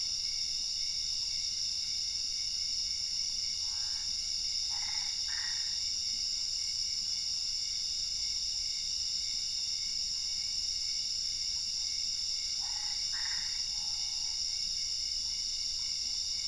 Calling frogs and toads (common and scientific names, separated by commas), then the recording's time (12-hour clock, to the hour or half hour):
Boana albopunctata
11:30pm